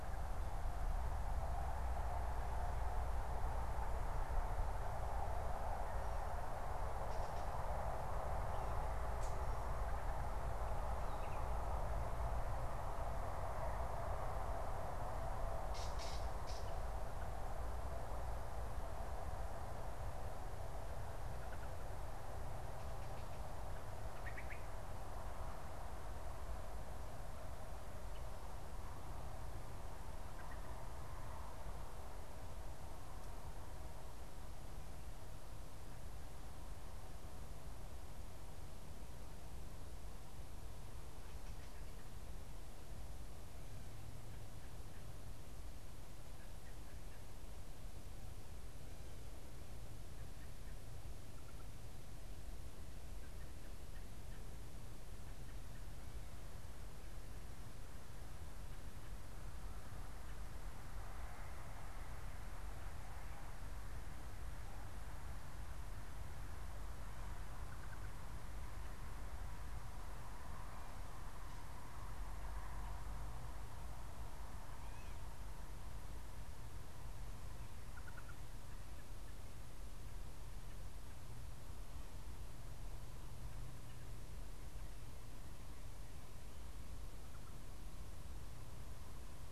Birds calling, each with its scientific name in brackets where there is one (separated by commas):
Wood Thrush (Hylocichla mustelina), unidentified bird, Gray Catbird (Dumetella carolinensis)